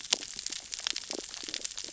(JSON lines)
{"label": "biophony, sea urchins (Echinidae)", "recorder": "SoundTrap 600 or HydroMoth"}